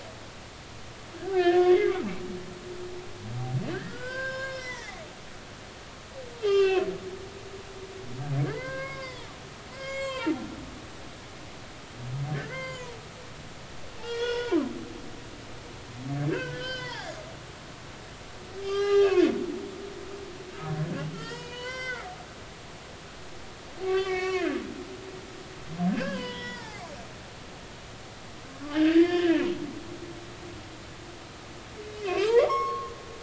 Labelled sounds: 1.2	2.0	humpback whale, 1.3 to 2.7 kHz
3.7	5.0	humpback whale, 0.80 to 6.2 kHz
6.4	6.9	humpback whale, 1.1 to 5.2 kHz
8.5	9.3	humpback whale, 0.86 to 5.5 kHz
9.7	10.4	humpback whale, 0.86 to 7.6 kHz
12.3	13.0	humpback whale, 0.90 to 7.4 kHz
14.0	14.6	humpback whale, 0.83 to 5.4 kHz
16.3	17.2	humpback whale, 0.80 to 6.2 kHz
18.6	19.2	humpback whale, 0.80 to 5.3 kHz
21.1	22.1	humpback whale, 0.90 to 5.4 kHz
23.8	24.6	humpback whale, 1.0 to 5.8 kHz
26.0	26.9	humpback whale, 0.80 to 5.4 kHz
28.7	29.4	humpback whale, 0.99 to 2.9 kHz
32.0	33.0	humpback whale, 0.86 to 6.6 kHz

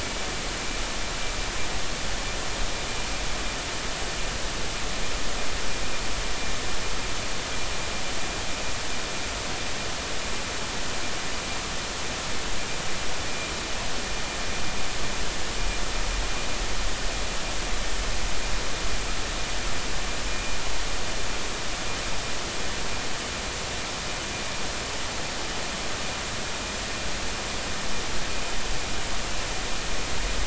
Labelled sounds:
20.3	20.6	vessel noise, 2.4 to 2.5 kHz

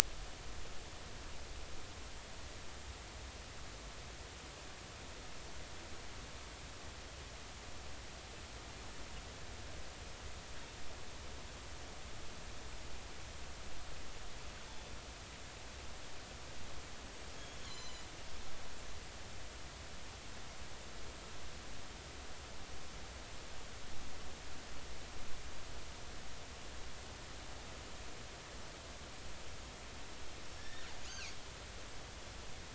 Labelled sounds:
17.4	18.0	killer whale, northern resident, G clan, 2.9 to 7.2 kHz
30.6	30.9	killer whale, northern resident, G clan, 1.7 to 1.9 kHz

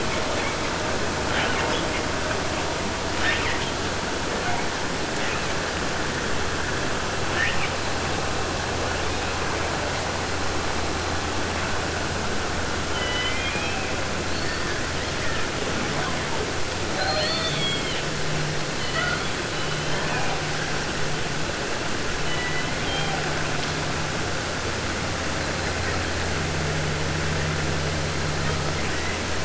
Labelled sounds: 0.1	1.0	killer whale, 0.29 to 3.2 kHz
1.3	2.1	killer whale, 0.50 to 5.3 kHz
3.0	3.8	killer whale, 0.50 to 6.0 kHz
4.3	4.7	killer whale, 0.23 to 3.3 kHz
5.1	5.6	killer whale, 0.53 to 4.4 kHz
7.2	7.8	killer whale, 0.50 to 3.4 kHz
8.8	9.7	killer whale, 0.57 to 4.8 kHz
12.8	13.9	killer whale, southern resident, J pod, call S01, 0.50 to 6.7 kHz
14.3	16.5	killer whale, 0.96 to 5.0 kHz
16.9	18.1	killer whale, 0.50 to 8.0 kHz
18.7	19.4	killer whale, 0.32 to 5.4 kHz
19.4	20.4	killer whale, southern resident, J pod, call S01, 0.50 to 4.4 kHz
22.1	23.4	killer whale, southern resident, J pod, call S01, 0.25 to 4.7 kHz
28.4	29.3	killer whale, southern resident, 0.23 to 3.6 kHz

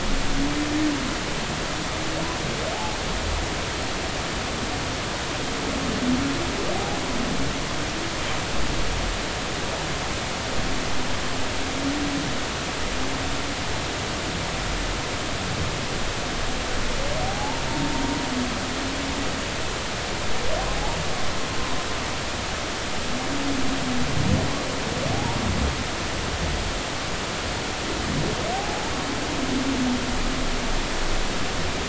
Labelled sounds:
17.2	17.6	humpback whale, 0.80 to 0.96 kHz
25.1	25.4	humpback whale, 0.80 to 1.0 kHz
28.5	28.9	humpback whale, 0.80 to 0.96 kHz

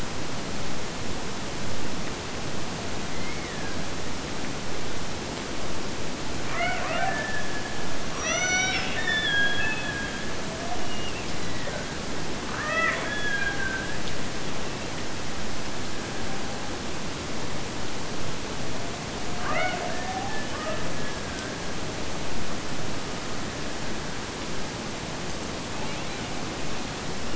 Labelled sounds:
6.4	12.1	killer whale, Bigg's (transient), Gulf of Alaska transient, 0.35 to 6.1 kHz
12.6	14.1	killer whale, Bigg's (transient), Gulf of Alaska transient, 0.45 to 3.5 kHz
19.3	21.8	killer whale, Bigg's (transient), Gulf of Alaska transient, 0.43 to 3.0 kHz

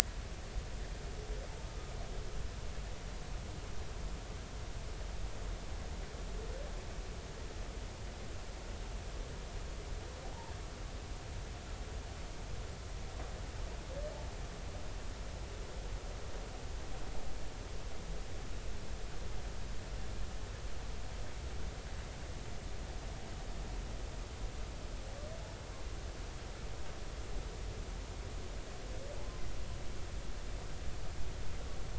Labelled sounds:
1.6	2.0	humpback whale, 1.2 to 1.3 kHz
10.2	10.5	humpback whale, 0.80 to 1.0 kHz

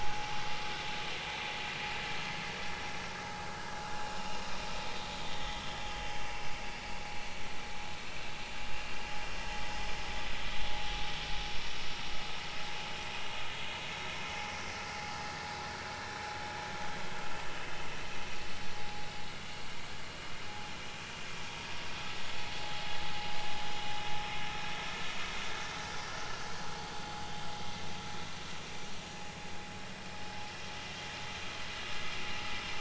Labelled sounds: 5.4	5.6	vessel noise, 1.9 to 2.0 kHz
26.5	26.8	vessel noise, 4.4 to 4.5 kHz

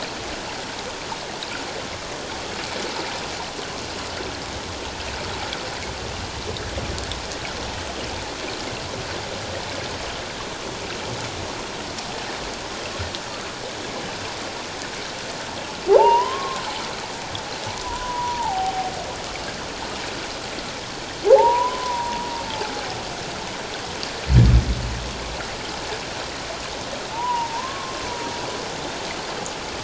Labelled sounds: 15.9	16.6	humpback whale, 0.78 to 3.3 kHz
17.8	18.9	humpback whale, 0.78 to 1.0 kHz
21.3	22.3	humpback whale, 0.78 to 1.1 kHz
27.1	28.0	humpback whale, 0.81 to 1.2 kHz

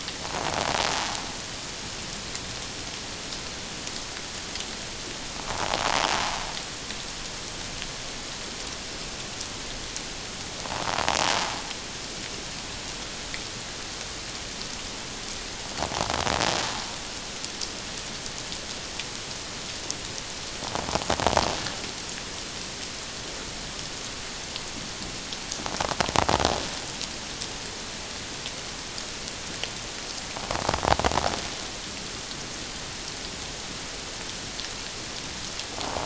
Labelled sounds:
5.5	5.8	invertebrate grinding on or near the hydrophone, 0.78 to 1.2 kHz

